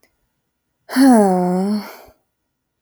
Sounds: Sigh